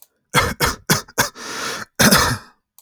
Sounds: Cough